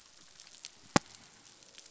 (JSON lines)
{"label": "biophony, croak", "recorder": "SoundTrap 500"}